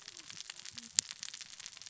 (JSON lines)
{"label": "biophony, cascading saw", "recorder": "SoundTrap 600 or HydroMoth"}